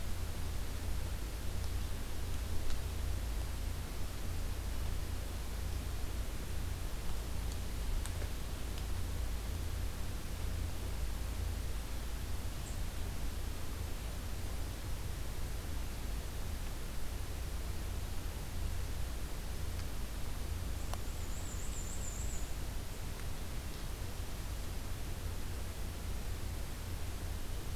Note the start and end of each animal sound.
[20.70, 22.59] Black-and-white Warbler (Mniotilta varia)

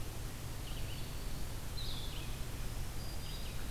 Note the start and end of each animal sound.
[0.00, 3.70] Blue-headed Vireo (Vireo solitarius)
[0.00, 3.70] Red-eyed Vireo (Vireo olivaceus)
[2.85, 3.55] Black-throated Green Warbler (Setophaga virens)

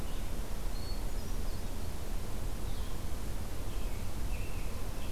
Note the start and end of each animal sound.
[0.00, 5.11] Blue-headed Vireo (Vireo solitarius)
[0.66, 1.74] Hermit Thrush (Catharus guttatus)
[3.62, 5.11] American Robin (Turdus migratorius)

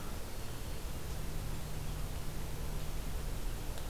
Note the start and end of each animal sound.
[0.00, 3.72] Red-eyed Vireo (Vireo olivaceus)

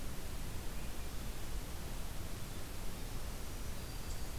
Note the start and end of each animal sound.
[0.55, 1.51] Swainson's Thrush (Catharus ustulatus)
[3.24, 4.39] Black-throated Green Warbler (Setophaga virens)

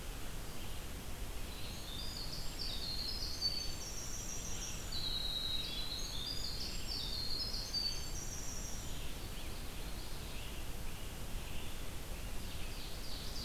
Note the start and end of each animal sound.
[0.00, 13.44] Red-eyed Vireo (Vireo olivaceus)
[1.23, 9.07] Winter Wren (Troglodytes hiemalis)
[12.37, 13.44] Ovenbird (Seiurus aurocapilla)

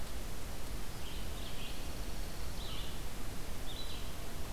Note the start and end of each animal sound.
[0.00, 4.53] Red-eyed Vireo (Vireo olivaceus)
[1.43, 3.01] Dark-eyed Junco (Junco hyemalis)

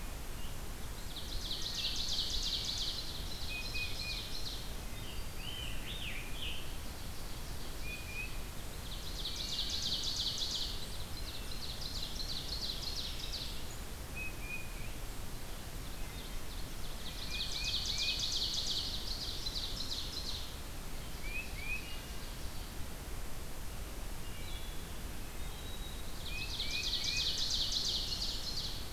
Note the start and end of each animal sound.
[1.03, 4.80] Ovenbird (Seiurus aurocapilla)
[4.86, 5.62] Black-throated Green Warbler (Setophaga virens)
[4.93, 6.85] Scarlet Tanager (Piranga olivacea)
[6.64, 8.51] Ovenbird (Seiurus aurocapilla)
[7.58, 8.62] Tufted Titmouse (Baeolophus bicolor)
[8.83, 13.69] Ovenbird (Seiurus aurocapilla)
[14.05, 15.26] Tufted Titmouse (Baeolophus bicolor)
[15.83, 16.47] Wood Thrush (Hylocichla mustelina)
[16.76, 20.70] Ovenbird (Seiurus aurocapilla)
[17.08, 18.10] Tufted Titmouse (Baeolophus bicolor)
[21.00, 22.04] Tufted Titmouse (Baeolophus bicolor)
[21.73, 22.41] Wood Thrush (Hylocichla mustelina)
[24.20, 26.16] Wood Thrush (Hylocichla mustelina)
[25.89, 28.93] Ovenbird (Seiurus aurocapilla)
[26.19, 27.28] Tufted Titmouse (Baeolophus bicolor)

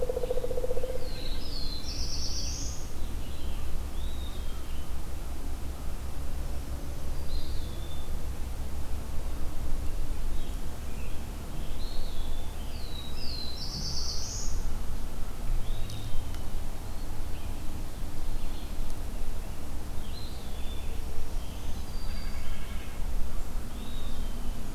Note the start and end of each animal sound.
[0.00, 1.13] Pileated Woodpecker (Dryocopus pileatus)
[0.00, 21.69] Red-eyed Vireo (Vireo olivaceus)
[0.09, 3.76] Scarlet Tanager (Piranga olivacea)
[0.67, 3.22] Black-throated Blue Warbler (Setophaga caerulescens)
[3.79, 4.79] Eastern Wood-Pewee (Contopus virens)
[6.99, 8.24] Eastern Wood-Pewee (Contopus virens)
[10.29, 13.65] Scarlet Tanager (Piranga olivacea)
[11.54, 12.78] Eastern Wood-Pewee (Contopus virens)
[12.51, 14.91] Black-throated Blue Warbler (Setophaga caerulescens)
[15.31, 16.46] Eastern Wood-Pewee (Contopus virens)
[19.86, 21.16] Eastern Wood-Pewee (Contopus virens)
[20.84, 22.43] Black-throated Green Warbler (Setophaga virens)
[21.93, 23.31] White-breasted Nuthatch (Sitta carolinensis)
[23.50, 24.75] Eastern Wood-Pewee (Contopus virens)

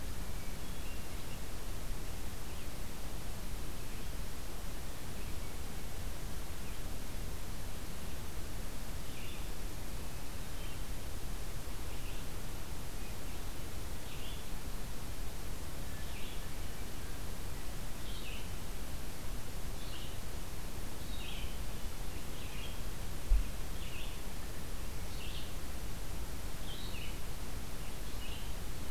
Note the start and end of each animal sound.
[0.00, 1.49] Hermit Thrush (Catharus guttatus)
[2.36, 28.90] Red-eyed Vireo (Vireo olivaceus)
[15.64, 16.93] Hermit Thrush (Catharus guttatus)
[21.05, 22.17] Hermit Thrush (Catharus guttatus)

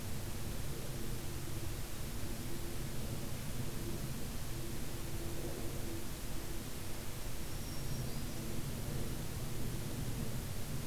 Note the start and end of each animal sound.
[7.06, 8.37] Black-throated Green Warbler (Setophaga virens)

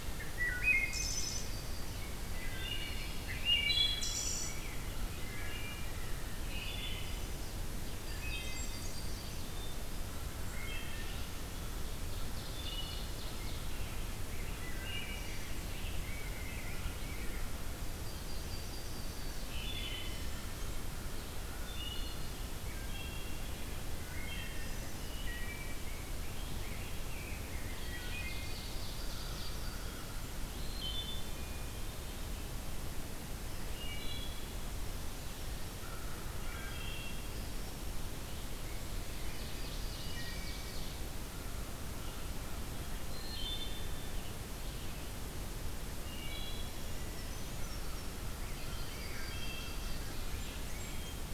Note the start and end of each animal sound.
[0.04, 1.60] Wood Thrush (Hylocichla mustelina)
[0.45, 2.04] Yellow-rumped Warbler (Setophaga coronata)
[2.21, 4.78] Wood Thrush (Hylocichla mustelina)
[2.80, 6.37] Rose-breasted Grosbeak (Pheucticus ludovicianus)
[5.13, 5.90] Wood Thrush (Hylocichla mustelina)
[6.32, 7.33] Wood Thrush (Hylocichla mustelina)
[7.72, 9.47] Yellow-rumped Warbler (Setophaga coronata)
[7.84, 9.27] Blackburnian Warbler (Setophaga fusca)
[7.91, 8.68] Wood Thrush (Hylocichla mustelina)
[9.40, 10.21] Hermit Thrush (Catharus guttatus)
[10.21, 11.31] Wood Thrush (Hylocichla mustelina)
[11.85, 13.81] Ovenbird (Seiurus aurocapilla)
[12.50, 13.16] Wood Thrush (Hylocichla mustelina)
[12.87, 17.48] Rose-breasted Grosbeak (Pheucticus ludovicianus)
[14.54, 15.56] Wood Thrush (Hylocichla mustelina)
[17.91, 19.63] Yellow-rumped Warbler (Setophaga coronata)
[19.43, 20.45] Wood Thrush (Hylocichla mustelina)
[21.48, 23.63] Wood Thrush (Hylocichla mustelina)
[23.91, 25.79] Wood Thrush (Hylocichla mustelina)
[25.42, 28.17] Rose-breasted Grosbeak (Pheucticus ludovicianus)
[27.53, 30.06] Ovenbird (Seiurus aurocapilla)
[27.75, 28.67] Wood Thrush (Hylocichla mustelina)
[28.16, 30.03] Yellow-rumped Warbler (Setophaga coronata)
[28.95, 30.27] American Crow (Corvus brachyrhynchos)
[30.44, 31.38] Wood Thrush (Hylocichla mustelina)
[31.02, 32.34] Hermit Thrush (Catharus guttatus)
[33.58, 34.62] Wood Thrush (Hylocichla mustelina)
[35.63, 36.96] American Crow (Corvus brachyrhynchos)
[36.55, 37.63] Wood Thrush (Hylocichla mustelina)
[39.09, 41.06] Ovenbird (Seiurus aurocapilla)
[39.94, 40.70] Wood Thrush (Hylocichla mustelina)
[41.28, 42.66] American Crow (Corvus brachyrhynchos)
[42.92, 44.16] Wood Thrush (Hylocichla mustelina)
[45.94, 46.70] Wood Thrush (Hylocichla mustelina)
[46.54, 48.20] Brown Creeper (Certhia americana)
[48.41, 50.30] Yellow-rumped Warbler (Setophaga coronata)
[48.64, 49.78] Wood Thrush (Hylocichla mustelina)
[49.42, 50.91] Ovenbird (Seiurus aurocapilla)
[50.14, 51.21] Blackburnian Warbler (Setophaga fusca)

